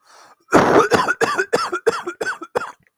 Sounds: Cough